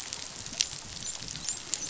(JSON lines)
{"label": "biophony, dolphin", "recorder": "SoundTrap 500"}